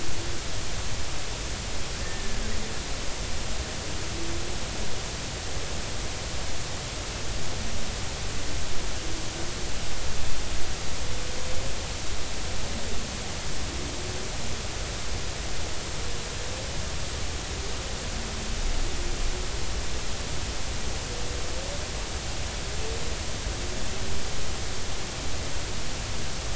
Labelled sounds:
2.0	2.4	killer whale, Bigg's (transient), 1.7 to 1.9 kHz

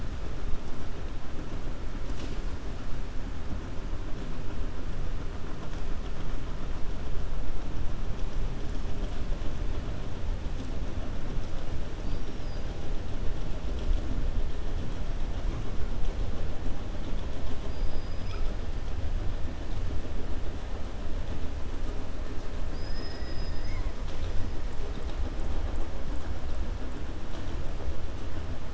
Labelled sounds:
11.9	12.7	killer whale, 4.0 to 5.7 kHz
22.8	23.9	killer whale, 1.0 to 2.8 kHz

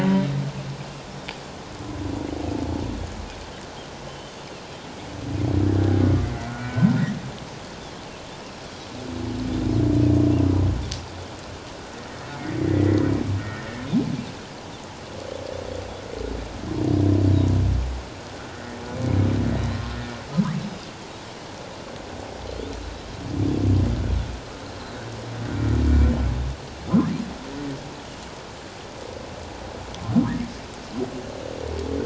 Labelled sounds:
0.0	0.3	humpback whale, 0.91 to 1.0 kHz
4.1	4.3	Pacific white-sided dolphin, 3.0 to 3.1 kHz
6.2	6.9	humpback whale, 1.4 to 2.1 kHz
12.6	13.0	humpback whale, 1.8 to 2.1 kHz
13.4	13.6	Pacific white-sided dolphin, 1.8 to 1.9 kHz
19.6	19.8	Pacific white-sided dolphin, 3.8 to 4.4 kHz
24.8	25.0	Pacific white-sided dolphin, 3.7 to 4.2 kHz

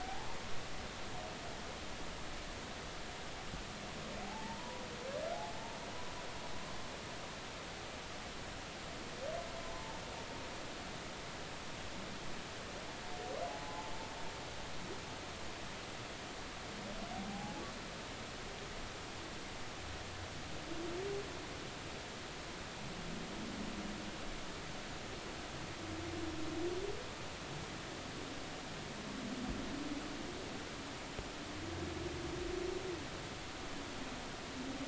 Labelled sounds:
0.0	0.3	humpback whale, 0.80 to 0.93 kHz
4.2	4.8	humpback whale, 0.80 to 1.0 kHz
5.3	5.8	humpback whale, 0.80 to 0.96 kHz
9.7	10.0	humpback whale, 0.83 to 0.96 kHz
13.5	13.9	humpback whale, 0.80 to 0.93 kHz
17.3	17.6	humpback whale, 0.80 to 0.90 kHz

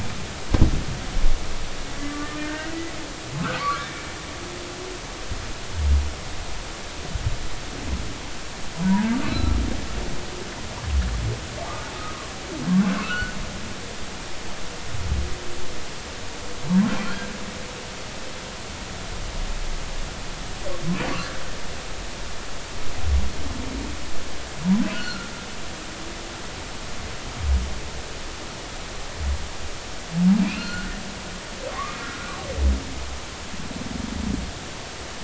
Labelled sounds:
2.0	2.7	humpback whale, 1.1 to 2.0 kHz
3.4	4.0	humpback whale, 1.1 to 2.3 kHz
8.8	10.2	humpback whale, 0.80 to 4.1 kHz
12.0	12.3	humpback whale, 1.0 to 1.3 kHz
13.0	13.3	humpback whale, 1.2 to 1.5 kHz
24.9	25.3	humpback whale, 1.3 to 4.5 kHz
30.3	30.9	humpback whale, 1.3 to 4.4 kHz
31.8	32.0	humpback whale, 0.99 to 1.3 kHz

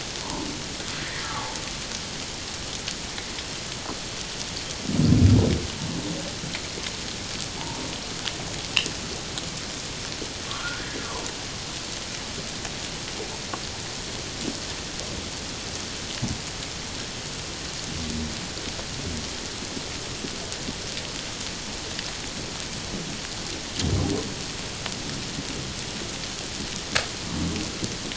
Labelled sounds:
0.2	0.5	humpback whale, 0.81 to 1.1 kHz
1.2	1.6	humpback whale, 0.78 to 1.4 kHz
7.6	7.8	humpback whale, 0.81 to 1.0 kHz
10.5	11.3	humpback whale, 0.88 to 1.6 kHz

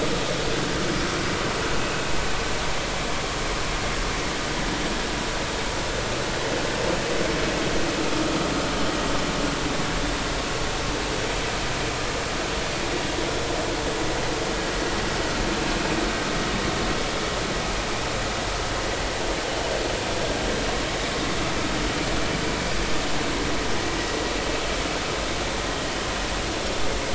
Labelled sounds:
1.8	2.1	vessel noise, 2.5 to 2.8 kHz

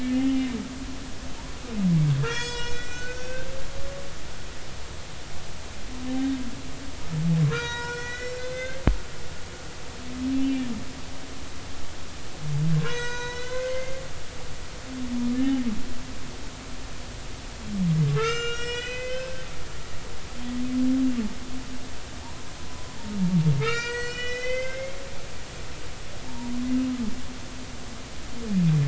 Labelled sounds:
0.0	0.5	humpback whale, 0.80 to 3.0 kHz
2.2	3.6	humpback whale, 0.90 to 6.8 kHz
7.5	8.8	humpback whale, 0.90 to 7.2 kHz
10.3	10.7	humpback whale, 2.6 to 3.0 kHz
12.8	14.0	humpback whale, 0.93 to 6.4 kHz
18.2	19.5	humpback whale, 1.2 to 6.8 kHz
23.6	25.0	humpback whale, 1.2 to 8.0 kHz
26.2	26.5	humpback whale, 0.86 to 0.99 kHz

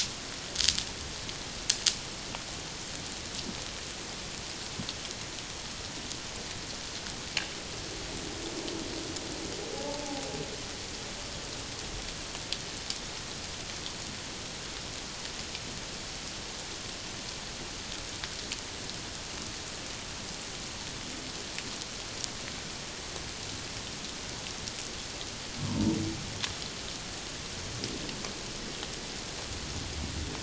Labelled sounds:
9.7	10.0	humpback whale, 0.78 to 0.94 kHz
25.6	26.0	humpback whale, 0.88 to 1.2 kHz

